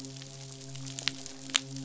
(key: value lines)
label: biophony, midshipman
recorder: SoundTrap 500